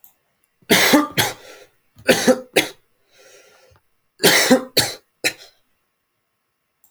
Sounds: Cough